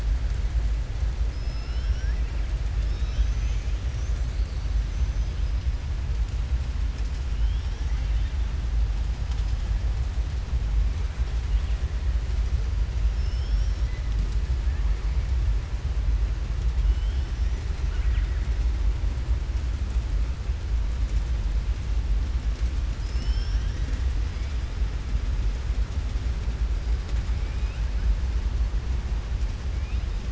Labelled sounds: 17.8	18.4	killer whale, southern resident, 1.3 to 3.6 kHz
22.9	24.0	killer whale, southern resident, 1.6 to 7.9 kHz

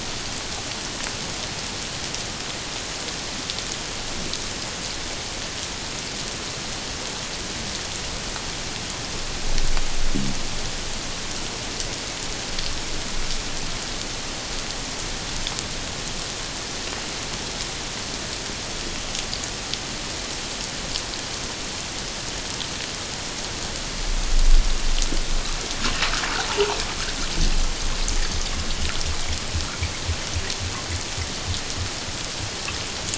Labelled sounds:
26.5	26.8	water noise, 0.81 to 1.0 kHz

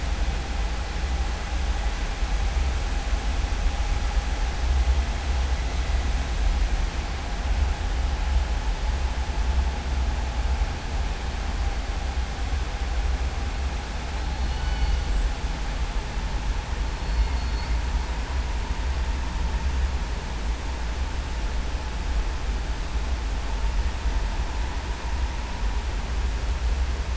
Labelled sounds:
14.4	15.0	killer whale, southern resident, 1.5 to 5.2 kHz
17.0	17.7	killer whale, southern resident, 3.6 to 5.4 kHz

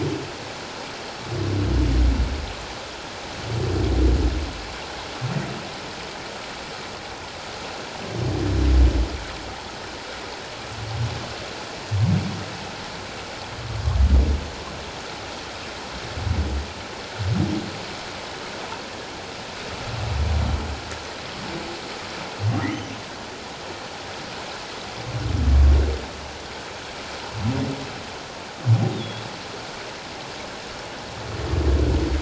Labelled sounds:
28.9	29.2	humpback whale, 3.2 to 3.8 kHz

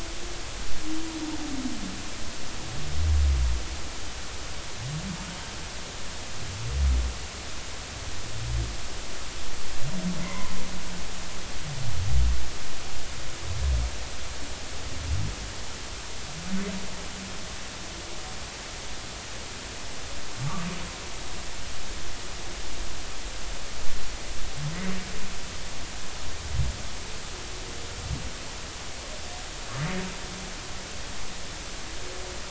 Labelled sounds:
10.2	10.5	humpback whale, 0.93 to 2.2 kHz

